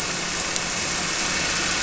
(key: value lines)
label: anthrophony, boat engine
recorder: SoundTrap 300